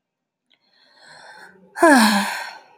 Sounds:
Sigh